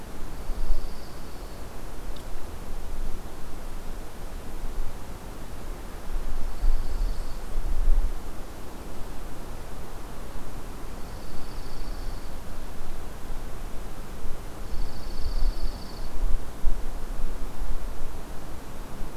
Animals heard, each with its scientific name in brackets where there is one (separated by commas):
Dark-eyed Junco (Junco hyemalis)